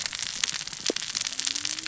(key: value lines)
label: biophony, cascading saw
recorder: SoundTrap 600 or HydroMoth